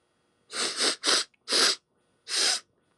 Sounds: Sniff